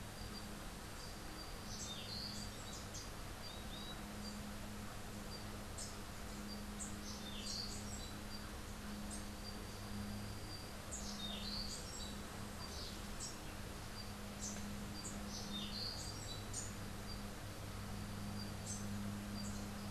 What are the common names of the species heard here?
Yellow-crowned Euphonia, Orange-billed Nightingale-Thrush